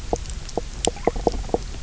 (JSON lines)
{"label": "biophony, knock croak", "recorder": "SoundTrap 300"}